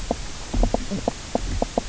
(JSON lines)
{"label": "biophony, knock croak", "recorder": "SoundTrap 300"}